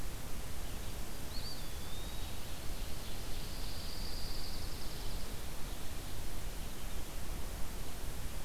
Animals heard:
Eastern Wood-Pewee (Contopus virens), Ovenbird (Seiurus aurocapilla), Dark-eyed Junco (Junco hyemalis)

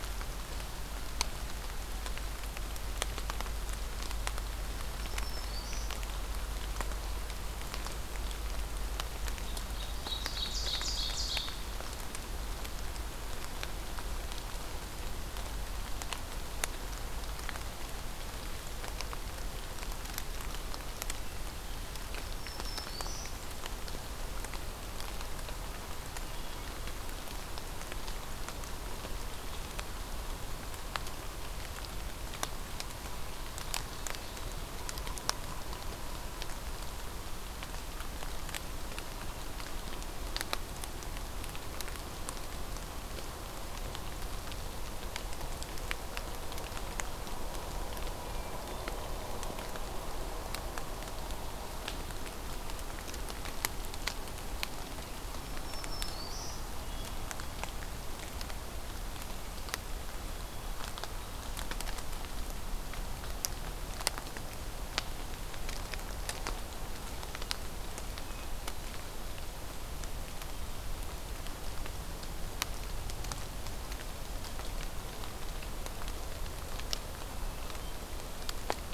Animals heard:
Ovenbird (Seiurus aurocapilla), Hermit Thrush (Catharus guttatus), Yellow-bellied Sapsucker (Sphyrapicus varius), Black-throated Green Warbler (Setophaga virens)

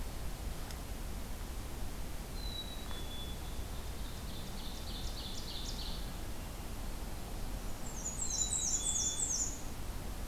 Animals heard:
Black-capped Chickadee (Poecile atricapillus), Ovenbird (Seiurus aurocapilla), Black-and-white Warbler (Mniotilta varia)

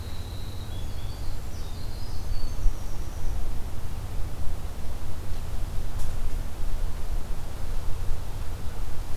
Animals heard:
Winter Wren (Troglodytes hiemalis)

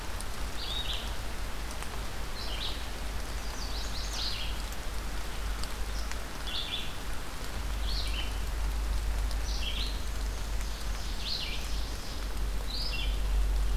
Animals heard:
Red-eyed Vireo (Vireo olivaceus), Chestnut-sided Warbler (Setophaga pensylvanica), Ovenbird (Seiurus aurocapilla)

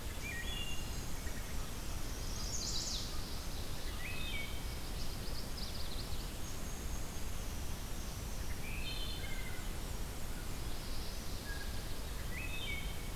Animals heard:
Chestnut-sided Warbler (Setophaga pensylvanica), Black-and-white Warbler (Mniotilta varia), Wood Thrush (Hylocichla mustelina)

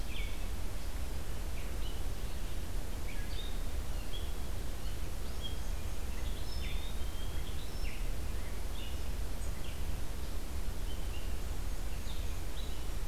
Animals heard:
Red-eyed Vireo (Vireo olivaceus), Black-capped Chickadee (Poecile atricapillus)

